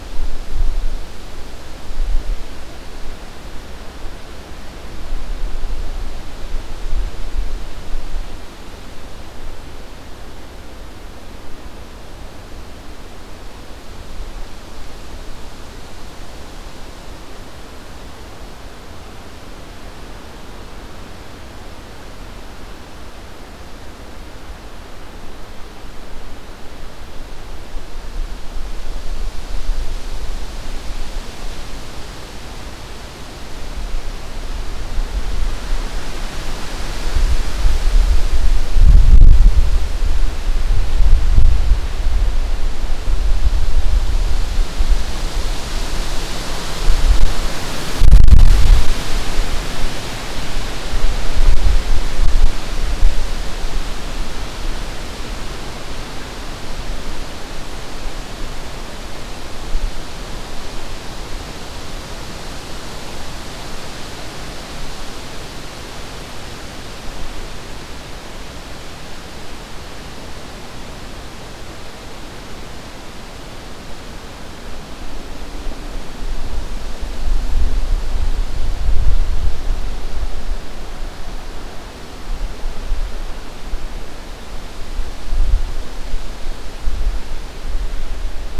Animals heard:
forest ambience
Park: Acadia National Park